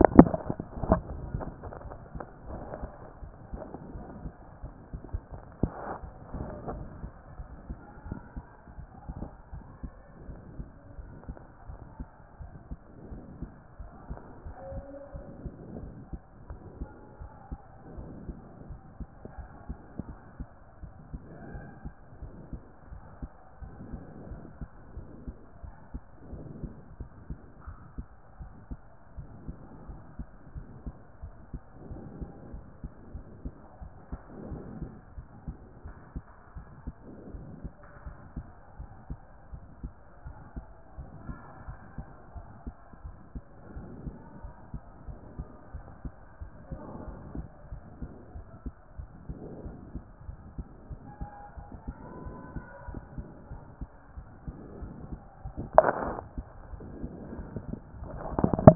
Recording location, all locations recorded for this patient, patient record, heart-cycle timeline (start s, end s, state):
aortic valve (AV)
aortic valve (AV)+pulmonary valve (PV)+tricuspid valve (TV)+mitral valve (MV)
#Age: nan
#Sex: Female
#Height: nan
#Weight: nan
#Pregnancy status: True
#Murmur: Absent
#Murmur locations: nan
#Most audible location: nan
#Systolic murmur timing: nan
#Systolic murmur shape: nan
#Systolic murmur grading: nan
#Systolic murmur pitch: nan
#Systolic murmur quality: nan
#Diastolic murmur timing: nan
#Diastolic murmur shape: nan
#Diastolic murmur grading: nan
#Diastolic murmur pitch: nan
#Diastolic murmur quality: nan
#Outcome: Normal
#Campaign: 2014 screening campaign
0.00	9.52	unannotated
9.52	9.64	S1
9.64	9.82	systole
9.82	9.92	S2
9.92	10.28	diastole
10.28	10.40	S1
10.40	10.58	systole
10.58	10.68	S2
10.68	10.98	diastole
10.98	11.10	S1
11.10	11.28	systole
11.28	11.36	S2
11.36	11.68	diastole
11.68	11.80	S1
11.80	11.98	systole
11.98	12.08	S2
12.08	12.40	diastole
12.40	12.52	S1
12.52	12.70	systole
12.70	12.78	S2
12.78	13.10	diastole
13.10	13.22	S1
13.22	13.40	systole
13.40	13.50	S2
13.50	13.80	diastole
13.80	13.90	S1
13.90	14.08	systole
14.08	14.20	S2
14.20	14.46	diastole
14.46	14.56	S1
14.56	14.72	systole
14.72	14.84	S2
14.84	15.14	diastole
15.14	15.24	S1
15.24	15.42	systole
15.42	15.52	S2
15.52	15.76	diastole
15.76	15.90	S1
15.90	16.10	systole
16.10	16.18	S2
16.18	16.48	diastole
16.48	16.60	S1
16.60	16.78	systole
16.78	16.90	S2
16.90	17.20	diastole
17.20	17.30	S1
17.30	17.50	systole
17.50	17.58	S2
17.58	17.98	diastole
17.98	18.10	S1
18.10	18.26	systole
18.26	18.36	S2
18.36	18.68	diastole
18.68	18.80	S1
18.80	18.98	systole
18.98	19.08	S2
19.08	19.38	diastole
19.38	19.48	S1
19.48	19.68	systole
19.68	19.78	S2
19.78	20.06	diastole
20.06	20.18	S1
20.18	20.38	systole
20.38	20.48	S2
20.48	20.82	diastole
20.82	20.92	S1
20.92	21.12	systole
21.12	21.20	S2
21.20	21.52	diastole
21.52	21.64	S1
21.64	21.84	systole
21.84	21.92	S2
21.92	22.22	diastole
22.22	22.32	S1
22.32	22.52	systole
22.52	22.62	S2
22.62	22.92	diastole
22.92	23.02	S1
23.02	23.20	systole
23.20	23.30	S2
23.30	23.62	diastole
23.62	23.72	S1
23.72	23.92	systole
23.92	24.00	S2
24.00	24.28	diastole
24.28	24.40	S1
24.40	24.60	systole
24.60	24.68	S2
24.68	24.96	diastole
24.96	25.06	S1
25.06	25.26	systole
25.26	25.36	S2
25.36	25.64	diastole
25.64	25.74	S1
25.74	25.92	systole
25.92	26.02	S2
26.02	26.32	diastole
26.32	26.44	S1
26.44	26.62	systole
26.62	26.72	S2
26.72	26.98	diastole
26.98	27.10	S1
27.10	27.28	systole
27.28	27.38	S2
27.38	27.66	diastole
27.66	27.78	S1
27.78	27.96	systole
27.96	28.06	S2
28.06	28.40	diastole
28.40	28.50	S1
28.50	28.70	systole
28.70	28.80	S2
28.80	29.18	diastole
29.18	29.28	S1
29.28	29.46	systole
29.46	29.56	S2
29.56	29.88	diastole
29.88	30.00	S1
30.00	30.18	systole
30.18	30.28	S2
30.28	30.56	diastole
30.56	30.66	S1
30.66	30.84	systole
30.84	30.94	S2
30.94	31.22	diastole
31.22	31.34	S1
31.34	31.52	systole
31.52	31.62	S2
31.62	32.20	diastole
32.20	58.75	unannotated